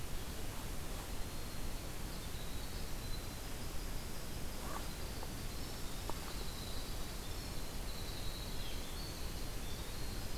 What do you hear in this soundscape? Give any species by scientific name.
Troglodytes hiemalis